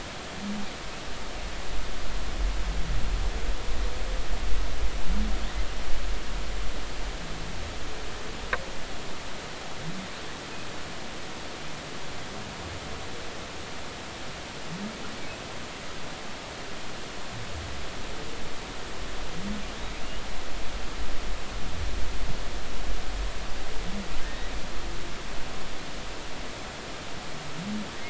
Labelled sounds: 24.2	24.5	humpback whale, 1.7 to 2.0 kHz

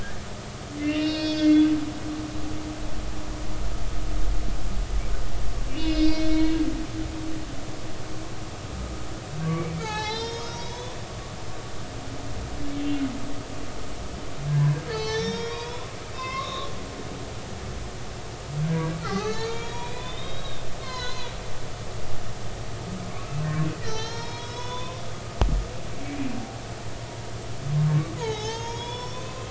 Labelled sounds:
0.8	2.5	humpback whale, 1.5 to 6.2 kHz
5.7	6.6	humpback whale, 2.1 to 5.8 kHz
9.4	11.0	humpback whale, 0.80 to 6.8 kHz
14.9	16.7	humpback whale, 0.80 to 6.0 kHz
18.6	21.3	humpback whale, 0.80 to 7.1 kHz
23.1	23.5	humpback whale, 2.1 to 2.7 kHz
23.8	25.0	humpback whale, 0.83 to 6.6 kHz
27.9	29.4	humpback whale, 0.80 to 6.8 kHz

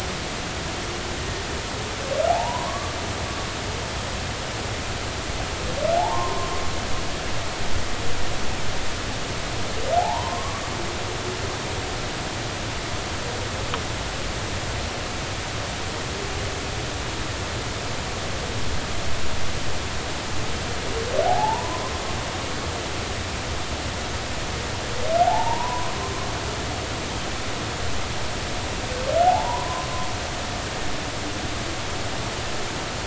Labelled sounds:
2.3	3.0	humpback whale, 0.80 to 1.2 kHz
6.0	6.5	humpback whale, 0.80 to 1.1 kHz
10.0	10.6	humpback whale, 0.80 to 1.2 kHz
21.2	21.8	humpback whale, 0.80 to 1.1 kHz
25.2	25.9	humpback whale, 0.80 to 1.1 kHz
29.2	29.9	humpback whale, 0.80 to 1.1 kHz

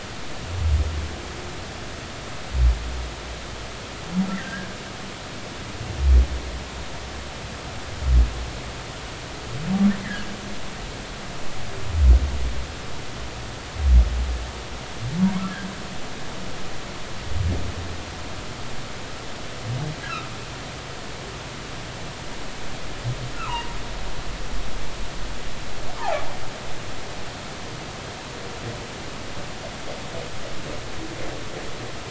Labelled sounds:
4.4	4.7	humpback whale, 1.5 to 2.0 kHz
10.0	10.3	humpback whale, 1.4 to 2.1 kHz
23.3	23.7	humpback whale, 0.86 to 1.5 kHz

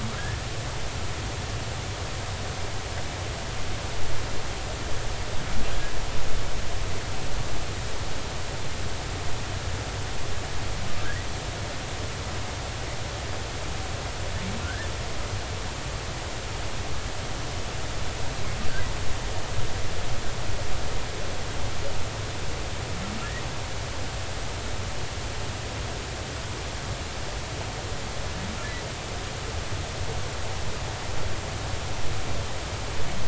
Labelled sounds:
14.6	14.9	humpback whale, 1.3 to 1.9 kHz

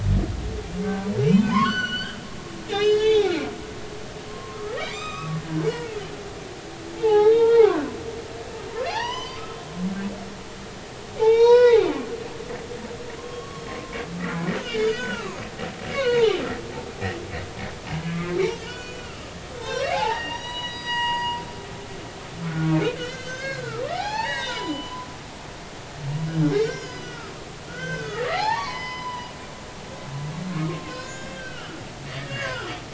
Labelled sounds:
0.8	2.2	humpback whale, 0.83 to 6.0 kHz
2.7	3.5	humpback whale, 0.80 to 5.2 kHz
4.3	5.7	humpback whale, 0.99 to 7.6 kHz
6.9	7.9	humpback whale, 0.80 to 3.9 kHz
8.8	10.3	humpback whale, 0.80 to 6.1 kHz
11.2	11.8	humpback whale, 0.80 to 6.4 kHz
13.2	15.4	humpback whale, 0.93 to 6.4 kHz
15.9	16.3	humpback whale, 0.80 to 4.5 kHz
17.9	21.4	humpback whale, 0.80 to 6.8 kHz
22.4	25.1	humpback whale, 0.80 to 6.5 kHz
26.6	29.3	humpback whale, 0.80 to 6.3 kHz
30.7	31.8	humpback whale, 1.0 to 7.0 kHz
32.2	32.8	humpback whale, 1.3 to 3.4 kHz

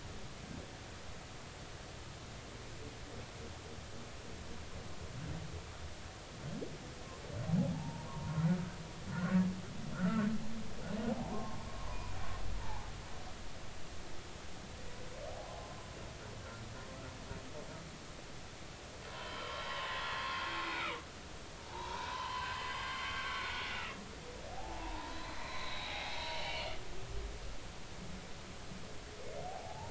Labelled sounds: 7.7	9.4	humpback whale, 0.80 to 1.6 kHz
9.9	10.2	humpback whale, 1.3 to 1.5 kHz
11.2	11.6	humpback whale, 0.80 to 1.1 kHz
11.8	12.9	humpback whale, 0.80 to 2.5 kHz
19.1	24.1	humpback whale, 0.83 to 5.0 kHz
24.5	26.8	humpback whale, 0.80 to 4.2 kHz
29.5	29.9	humpback whale, 0.80 to 1.0 kHz

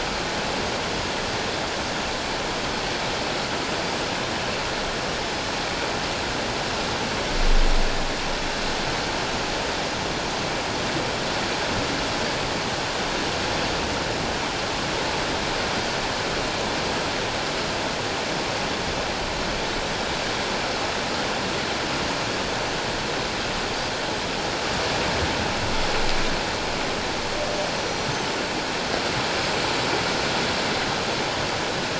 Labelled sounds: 27.7	28.1	humpback whale, 5.8 to 6.0 kHz

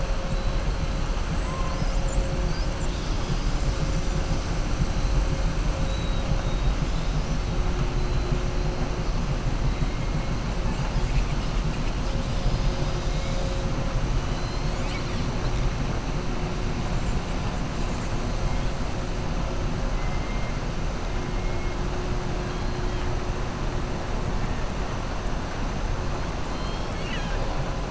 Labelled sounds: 14.2	15.3	killer whale, southern resident, 1.9 to 5.3 kHz
26.5	27.4	killer whale, southern resident, 1.6 to 6.6 kHz

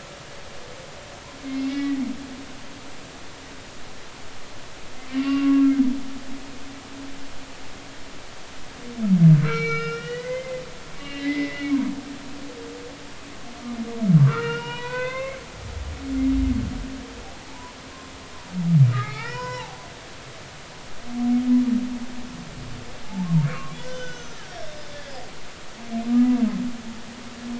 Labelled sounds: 1.4	2.0	humpback whale, 1.9 to 2.3 kHz
5.1	5.8	humpback whale, 1.1 to 3.0 kHz
9.4	10.6	humpback whale, 1.3 to 6.0 kHz
11.0	11.7	humpback whale, 1.9 to 2.9 kHz
14.2	15.4	humpback whale, 0.90 to 5.4 kHz
17.5	17.8	humpback whale, 0.83 to 1.1 kHz
18.9	19.8	humpback whale, 0.80 to 5.6 kHz
23.4	24.5	humpback whale, 1.0 to 6.4 kHz
26.1	26.4	humpback whale, 1.1 to 1.3 kHz

